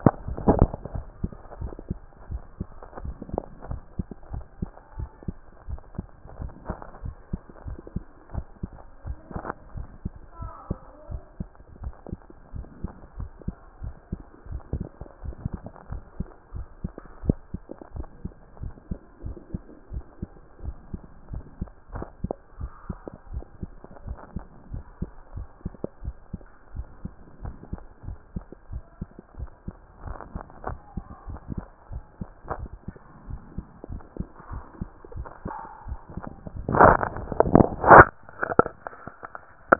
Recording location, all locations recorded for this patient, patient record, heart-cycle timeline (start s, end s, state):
mitral valve (MV)
aortic valve (AV)+pulmonary valve (PV)+tricuspid valve (TV)+mitral valve (MV)
#Age: Child
#Sex: Male
#Height: 136.0 cm
#Weight: 30.9 kg
#Pregnancy status: False
#Murmur: Absent
#Murmur locations: nan
#Most audible location: nan
#Systolic murmur timing: nan
#Systolic murmur shape: nan
#Systolic murmur grading: nan
#Systolic murmur pitch: nan
#Systolic murmur quality: nan
#Diastolic murmur timing: nan
#Diastolic murmur shape: nan
#Diastolic murmur grading: nan
#Diastolic murmur pitch: nan
#Diastolic murmur quality: nan
#Outcome: Abnormal
#Campaign: 2014 screening campaign
0.00	0.14	S2
0.14	0.40	diastole
0.40	0.58	S1
0.58	0.62	systole
0.62	0.70	S2
0.70	0.92	diastole
0.92	1.04	S1
1.04	1.18	systole
1.18	1.34	S2
1.34	1.58	diastole
1.58	1.72	S1
1.72	1.88	systole
1.88	2.02	S2
2.02	2.28	diastole
2.28	2.42	S1
2.42	2.58	systole
2.58	2.72	S2
2.72	3.00	diastole
3.00	3.16	S1
3.16	3.30	systole
3.30	3.44	S2
3.44	3.66	diastole
3.66	3.80	S1
3.80	3.92	systole
3.92	4.04	S2
4.04	4.30	diastole
4.30	4.44	S1
4.44	4.60	systole
4.60	4.72	S2
4.72	4.96	diastole
4.96	5.10	S1
5.10	5.24	systole
5.24	5.36	S2
5.36	5.66	diastole
5.66	5.80	S1
5.80	5.96	systole
5.96	6.10	S2
6.10	6.38	diastole
6.38	6.52	S1
6.52	6.66	systole
6.66	6.76	S2
6.76	7.02	diastole
7.02	7.16	S1
7.16	7.28	systole
7.28	7.42	S2
7.42	7.66	diastole
7.66	7.78	S1
7.78	7.92	systole
7.92	8.04	S2
8.04	8.30	diastole
8.30	8.44	S1
8.44	8.60	systole
8.60	8.74	S2
8.74	9.04	diastole
9.04	9.18	S1
9.18	9.32	systole
9.32	9.44	S2
9.44	9.72	diastole
9.72	9.86	S1
9.86	10.02	systole
10.02	10.14	S2
10.14	10.38	diastole
10.38	10.52	S1
10.52	10.66	systole
10.66	10.82	S2
10.82	11.08	diastole
11.08	11.22	S1
11.22	11.38	systole
11.38	11.52	S2
11.52	11.80	diastole
11.80	11.94	S1
11.94	12.08	systole
12.08	12.20	S2
12.20	12.52	diastole
12.52	12.66	S1
12.66	12.82	systole
12.82	12.92	S2
12.92	13.16	diastole
13.16	13.30	S1
13.30	13.46	systole
13.46	13.56	S2
13.56	13.82	diastole
13.82	13.94	S1
13.94	14.10	systole
14.10	14.20	S2
14.20	14.50	diastole
14.50	14.62	S1
14.62	14.74	systole
14.74	14.88	S2
14.88	15.22	diastole
15.22	15.36	S1
15.36	15.52	systole
15.52	15.62	S2
15.62	15.90	diastole
15.90	16.02	S1
16.02	16.18	systole
16.18	16.28	S2
16.28	16.54	diastole
16.54	16.68	S1
16.68	16.82	systole
16.82	16.96	S2
16.96	17.24	diastole
17.24	17.38	S1
17.38	17.52	systole
17.52	17.62	S2
17.62	17.92	diastole
17.92	18.06	S1
18.06	18.22	systole
18.22	18.32	S2
18.32	18.60	diastole
18.60	18.74	S1
18.74	18.88	systole
18.88	19.00	S2
19.00	19.24	diastole
19.24	19.36	S1
19.36	19.52	systole
19.52	19.62	S2
19.62	19.90	diastole
19.90	20.04	S1
20.04	20.20	systole
20.20	20.30	S2
20.30	20.62	diastole
20.62	20.76	S1
20.76	20.92	systole
20.92	21.02	S2
21.02	21.30	diastole
21.30	21.44	S1
21.44	21.60	systole
21.60	21.70	S2
21.70	21.92	diastole
21.92	22.06	S1
22.06	22.22	systole
22.22	22.36	S2
22.36	22.58	diastole
22.58	22.72	S1
22.72	22.88	systole
22.88	23.02	S2
23.02	23.30	diastole
23.30	23.44	S1
23.44	23.60	systole
23.60	23.74	S2
23.74	24.04	diastole
24.04	24.18	S1
24.18	24.34	systole
24.34	24.44	S2
24.44	24.70	diastole
24.70	24.84	S1
24.84	24.98	systole
24.98	25.12	S2
25.12	25.34	diastole
25.34	25.48	S1
25.48	25.64	systole
25.64	25.74	S2
25.74	26.02	diastole
26.02	26.16	S1
26.16	26.32	systole
26.32	26.42	S2
26.42	26.72	diastole
26.72	26.88	S1
26.88	27.02	systole
27.02	27.14	S2
27.14	27.42	diastole
27.42	27.56	S1
27.56	27.70	systole
27.70	27.82	S2
27.82	28.08	diastole
28.08	28.20	S1
28.20	28.34	systole
28.34	28.44	S2
28.44	28.70	diastole
28.70	28.84	S1
28.84	29.00	systole
29.00	29.10	S2
29.10	29.36	diastole
29.36	29.50	S1
29.50	29.66	systole
29.66	29.76	S2
29.76	30.04	diastole
30.04	30.18	S1
30.18	30.34	systole
30.34	30.44	S2
30.44	30.66	diastole
30.66	30.80	S1
30.80	30.92	systole
30.92	31.04	S2
31.04	31.26	diastole
31.26	31.40	S1
31.40	31.56	systole
31.56	31.68	S2
31.68	31.90	diastole
31.90	32.04	S1
32.04	32.20	systole
32.20	32.30	S2
32.30	32.58	diastole
32.58	32.70	S1
32.70	32.86	systole
32.86	32.96	S2
32.96	33.26	diastole
33.26	33.42	S1
33.42	33.56	systole
33.56	33.66	S2
33.66	33.90	diastole
33.90	34.02	S1
34.02	34.18	systole
34.18	34.28	S2
34.28	34.50	diastole
34.50	34.64	S1
34.64	34.80	systole
34.80	34.90	S2
34.90	35.14	diastole
35.14	35.28	S1
35.28	35.44	systole
35.44	35.54	S2
35.54	35.86	diastole
35.86	35.98	S1
35.98	36.16	systole
36.16	36.26	S2
36.26	36.54	diastole
36.54	36.68	S1
36.68	36.82	systole
36.82	36.98	S2
36.98	37.20	diastole
37.20	37.32	S1
37.32	37.44	systole
37.44	37.60	S2
37.60	37.88	diastole
37.88	38.06	S1
38.06	38.18	systole
38.18	38.22	S2
38.22	38.48	diastole
38.48	38.58	S1
38.58	38.72	systole
38.72	38.78	S2
38.78	39.06	diastole
39.06	39.16	S1
39.16	39.32	systole
39.32	39.40	S2
39.40	39.70	diastole
39.70	39.79	S1